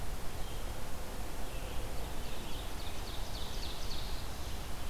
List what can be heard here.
Red-eyed Vireo, Ovenbird